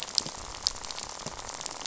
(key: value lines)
label: biophony, rattle
recorder: SoundTrap 500